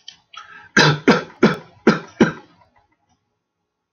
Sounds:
Cough